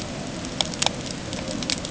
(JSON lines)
{"label": "ambient", "recorder": "HydroMoth"}